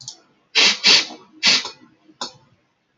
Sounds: Sniff